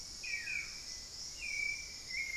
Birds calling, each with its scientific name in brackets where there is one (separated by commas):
Hauxwell's Thrush (Turdus hauxwelli), Buff-throated Woodcreeper (Xiphorhynchus guttatus), unidentified bird, Buff-breasted Wren (Cantorchilus leucotis)